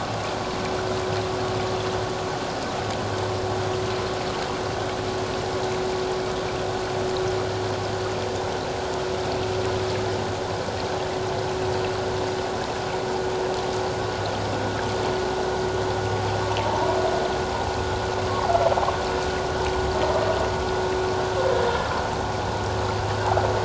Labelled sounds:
16.6	17.0	humpback whale, 0.84 to 1.0 kHz

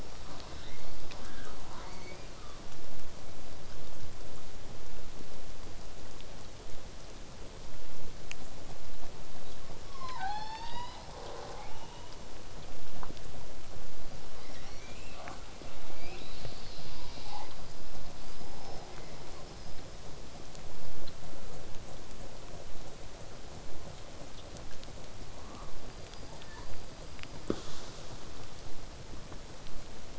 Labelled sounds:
0.0	2.7	killer whale, southern resident, 0.22 to 5.9 kHz
14.0	15.4	killer whale, southern resident, 0.31 to 7.6 kHz
15.9	17.5	killer whale, southern resident, 1.9 to 5.5 kHz
18.2	18.9	killer whale, southern resident, whistle, 4.1 to 5.3 kHz
19.6	24.7	vessel noise, 0 to 8.0 kHz
25.8	26.7	killer whale, southern resident, L pod, call S19, 0.48 to 5.0 kHz

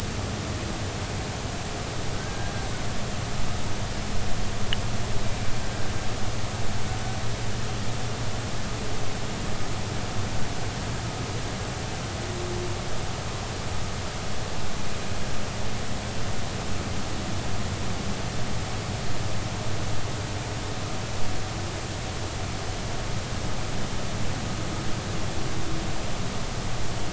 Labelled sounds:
2.1	2.7	humpback whale, 1.5 to 1.7 kHz

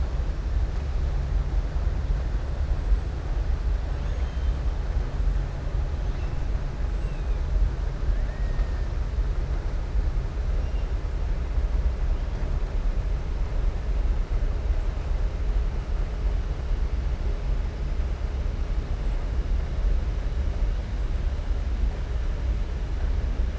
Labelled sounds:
3.9	4.6	killer whale, southern resident, 1.7 to 6.6 kHz
8.2	8.7	killer whale, southern resident, 1.2 to 2.0 kHz

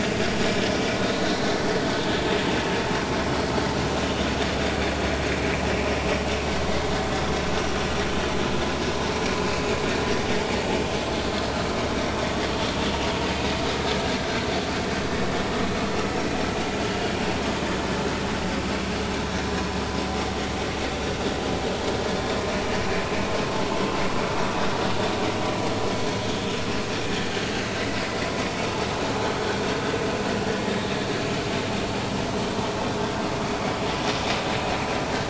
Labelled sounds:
1.2	1.5	vessel noise, 3.7 to 4.3 kHz

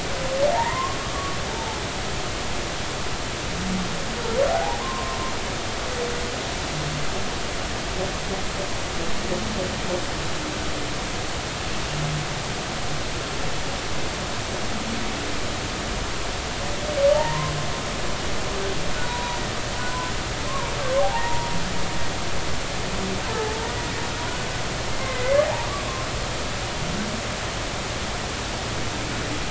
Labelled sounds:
0.5	1.8	humpback whale, 0.80 to 2.1 kHz
4.5	5.2	humpback whale, 0.80 to 1.2 kHz
17.1	17.6	humpback whale, 0.83 to 1.1 kHz
19.0	20.1	humpback whale, 0.90 to 1.1 kHz
20.5	21.5	humpback whale, 0.80 to 1.2 kHz
23.3	23.6	humpback whale, 0.83 to 1.9 kHz
24.9	25.7	humpback whale, 0.80 to 2.2 kHz

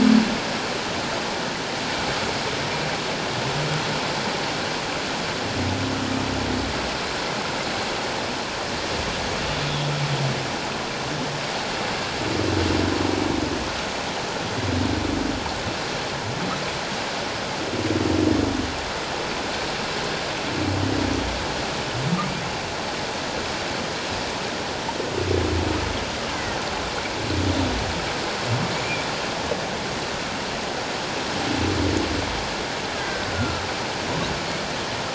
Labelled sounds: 26.3	26.6	killer whale, Bigg's (transient), 1.8 to 2.1 kHz
33.0	33.6	killer whale, Bigg's (transient), 1.3 to 1.7 kHz

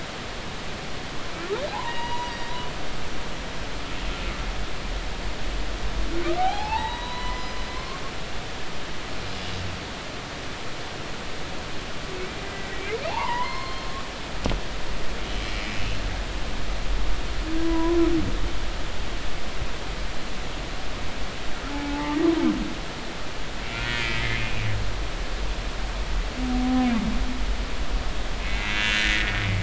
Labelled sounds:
1.7	2.3	humpback whale, 0.80 to 4.9 kHz
6.4	8.0	humpback whale, 0.80 to 5.1 kHz
13.1	13.9	humpback whale, 0.80 to 4.3 kHz
17.6	18.0	humpback whale, 0.93 to 1.1 kHz
21.7	22.2	humpback whale, 0.80 to 0.96 kHz
23.7	24.6	humpback whale, 1.3 to 4.9 kHz
28.4	29.4	humpback whale, 1.4 to 2.8 kHz

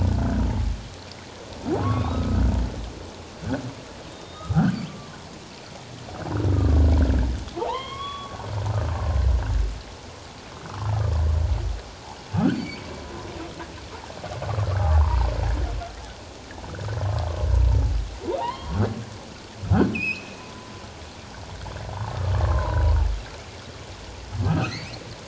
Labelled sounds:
1.8	2.4	humpback whale, 0.97 to 1.4 kHz
4.1	4.8	humpback whale, 1.2 to 3.8 kHz
6.4	6.8	humpback whale, 1.1 to 1.3 kHz
7.5	8.4	humpback whale, 0.78 to 3.4 kHz
12.5	12.9	humpback whale, 2.2 to 4.7 kHz
14.6	15.2	humpback whale, 0.78 to 1.4 kHz
18.4	18.8	humpback whale, 0.78 to 2.2 kHz
19.9	20.7	humpback whale, 0.97 to 5.4 kHz
21.9	23.0	humpback whale, 0.78 to 1.2 kHz
24.4	24.9	humpback whale, 1.2 to 4.7 kHz

